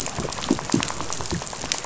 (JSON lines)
{"label": "biophony, rattle", "recorder": "SoundTrap 500"}